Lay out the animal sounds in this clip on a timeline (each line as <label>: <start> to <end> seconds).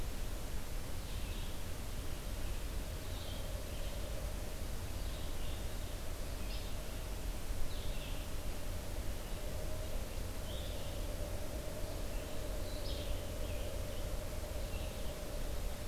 Blue-headed Vireo (Vireo solitarius): 0.0 to 10.8 seconds
Yellow-bellied Flycatcher (Empidonax flaviventris): 6.4 to 6.7 seconds
Blue-headed Vireo (Vireo solitarius): 11.9 to 15.9 seconds
Yellow-bellied Flycatcher (Empidonax flaviventris): 12.8 to 13.0 seconds